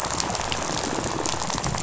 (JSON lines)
{"label": "biophony, rattle", "recorder": "SoundTrap 500"}